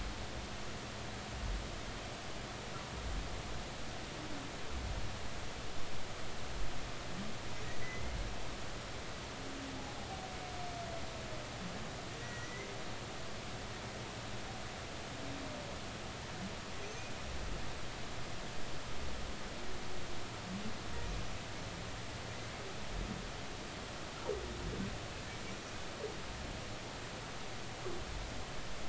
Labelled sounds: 7.8	8.2	humpback whale, 1.9 to 2.1 kHz
12.2	12.7	humpback whale, 1.9 to 2.1 kHz

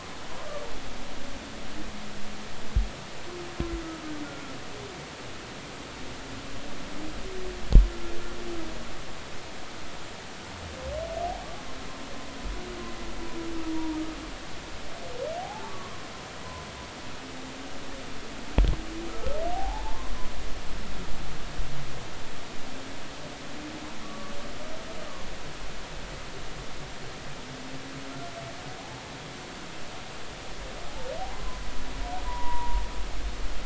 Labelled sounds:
13.7	14.0	humpback whale, 0.90 to 0.99 kHz
15.4	16.0	humpback whale, 0.80 to 1.2 kHz
19.1	20.1	humpback whale, 0.80 to 1.4 kHz
24.0	24.3	humpback whale, 1.1 to 1.2 kHz
32.2	32.8	humpback whale, 0.90 to 2.0 kHz

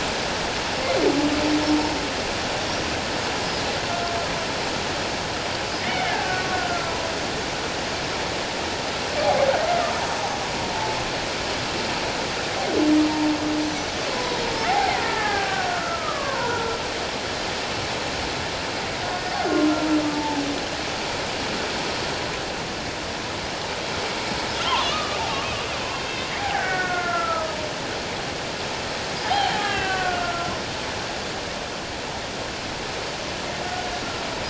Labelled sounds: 5.8	7.1	killer whale, Bigg's (transient), 0.88 to 2.3 kHz
14.1	14.4	killer whale, Bigg's (transient), 0.94 to 1.1 kHz
14.7	16.8	killer whale, Bigg's (transient), 0.78 to 1.9 kHz
20.1	20.4	killer whale, Bigg's (transient), 0.81 to 1.0 kHz
24.7	25.2	killer whale, Bigg's (transient), 0.78 to 1.4 kHz
26.0	27.6	killer whale, Bigg's (transient), 1.2 to 3.8 kHz
29.2	30.5	killer whale, Bigg's (transient), 0.78 to 3.3 kHz

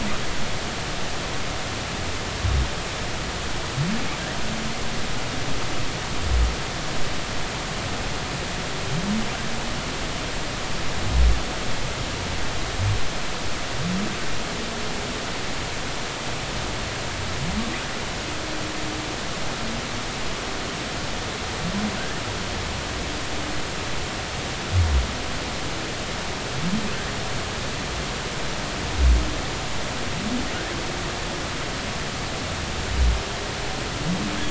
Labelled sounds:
22.0	22.2	humpback whale, 1.4 to 1.9 kHz

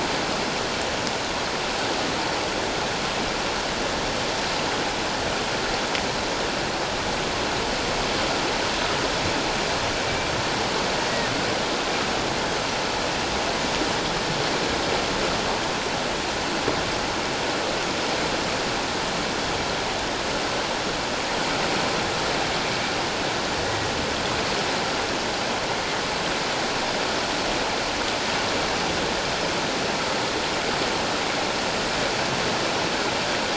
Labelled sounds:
23.6	23.9	water noise, 1.8 to 2.0 kHz

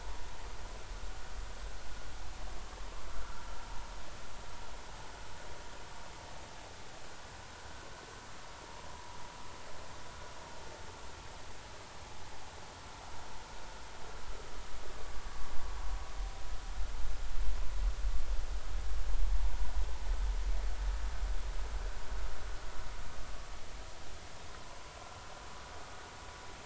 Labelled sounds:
3.1	3.5	vessel noise, 1.3 to 1.5 kHz
8.9	9.2	vessel noise, 0.90 to 1.1 kHz
24.5	24.8	vessel noise, 0.96 to 1.1 kHz

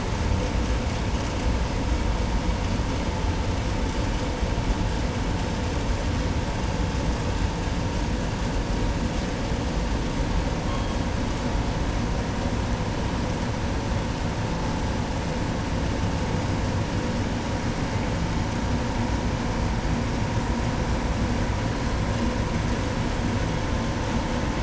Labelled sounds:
10.5	11.2	killer whale, 1.3 to 5.9 kHz

